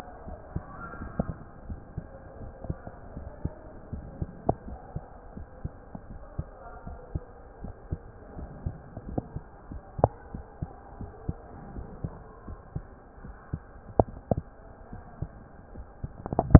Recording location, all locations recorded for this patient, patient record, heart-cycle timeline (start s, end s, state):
mitral valve (MV)
aortic valve (AV)+pulmonary valve (PV)+tricuspid valve (TV)+mitral valve (MV)
#Age: Adolescent
#Sex: Male
#Height: 155.0 cm
#Weight: 53.0 kg
#Pregnancy status: False
#Murmur: Absent
#Murmur locations: nan
#Most audible location: nan
#Systolic murmur timing: nan
#Systolic murmur shape: nan
#Systolic murmur grading: nan
#Systolic murmur pitch: nan
#Systolic murmur quality: nan
#Diastolic murmur timing: nan
#Diastolic murmur shape: nan
#Diastolic murmur grading: nan
#Diastolic murmur pitch: nan
#Diastolic murmur quality: nan
#Outcome: Normal
#Campaign: 2015 screening campaign
0.00	0.26	unannotated
0.26	0.38	S1
0.38	0.54	systole
0.54	0.64	S2
0.64	0.98	diastole
0.98	1.10	S1
1.10	1.18	systole
1.18	1.34	S2
1.34	1.68	diastole
1.68	1.80	S1
1.80	1.96	systole
1.96	2.06	S2
2.06	2.40	diastole
2.40	2.54	S1
2.54	2.68	systole
2.68	2.78	S2
2.78	3.14	diastole
3.14	3.26	S1
3.26	3.42	systole
3.42	3.52	S2
3.52	3.90	diastole
3.90	4.06	S1
4.06	4.20	systole
4.20	4.30	S2
4.30	4.65	diastole
4.65	4.78	S1
4.78	4.93	systole
4.93	5.04	S2
5.04	5.34	diastole
5.34	5.48	S1
5.48	5.62	systole
5.62	5.72	S2
5.72	6.07	diastole
6.07	6.22	S1
6.22	6.36	systole
6.36	6.46	S2
6.46	6.83	diastole
6.83	7.00	S1
7.00	7.14	systole
7.14	7.22	S2
7.22	7.59	diastole
7.59	7.74	S1
7.74	7.88	systole
7.88	8.00	S2
8.00	8.34	diastole
8.34	8.52	S1
8.52	8.64	systole
8.64	8.76	S2
8.76	9.05	diastole
9.05	9.22	S1
9.22	9.32	systole
9.32	9.48	S2
9.48	9.67	diastole
9.67	9.80	S1
9.80	9.96	systole
9.96	10.08	S2
10.08	10.31	diastole
10.31	10.43	S1
10.43	10.59	systole
10.59	10.68	S2
10.68	10.96	diastole
10.96	11.10	S1
11.10	11.26	systole
11.26	11.36	S2
11.36	11.73	diastole
11.73	11.88	S1
11.88	12.00	systole
12.00	12.12	S2
12.12	12.46	diastole
12.46	12.60	S1
12.60	12.74	systole
12.74	12.84	S2
12.84	13.19	diastole
13.19	13.36	S1
13.36	13.49	systole
13.49	13.60	S2
13.60	13.96	diastole
13.96	14.10	S1
14.10	14.30	systole
14.30	14.44	S2
14.44	14.89	diastole
14.89	15.04	S1
15.04	15.19	systole
15.19	15.30	S2
15.30	15.72	diastole
15.72	15.86	S1
15.86	16.02	systole
16.02	16.12	S2
16.12	16.59	unannotated